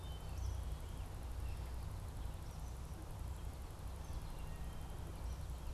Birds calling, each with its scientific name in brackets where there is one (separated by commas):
unidentified bird, Eastern Kingbird (Tyrannus tyrannus), Wood Thrush (Hylocichla mustelina)